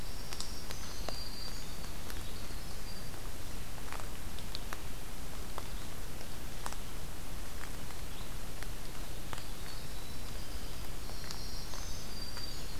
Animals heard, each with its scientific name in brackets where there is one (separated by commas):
Black-throated Green Warbler (Setophaga virens), Winter Wren (Troglodytes hiemalis), Red-eyed Vireo (Vireo olivaceus)